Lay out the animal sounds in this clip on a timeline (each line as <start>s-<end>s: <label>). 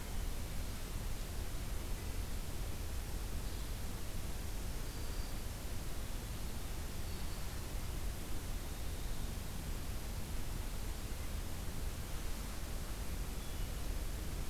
4.4s-5.7s: Black-throated Green Warbler (Setophaga virens)